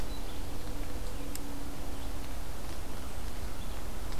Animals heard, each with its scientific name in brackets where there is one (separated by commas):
Red-eyed Vireo (Vireo olivaceus)